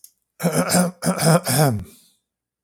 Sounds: Throat clearing